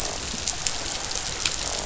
{"label": "biophony, croak", "recorder": "SoundTrap 500"}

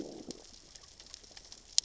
{"label": "biophony, growl", "recorder": "SoundTrap 600 or HydroMoth"}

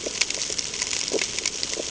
{"label": "ambient", "recorder": "HydroMoth"}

